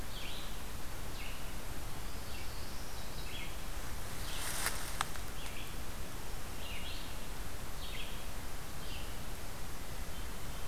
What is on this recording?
Red-eyed Vireo, Black-throated Blue Warbler, Hermit Thrush